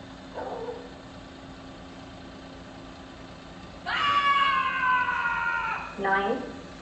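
At 0.29 seconds, a dog barks quietly. Then, at 3.83 seconds, someone screams. Afterwards, at 5.97 seconds, a voice says "nine." A constant noise sits about 20 decibels below the sounds.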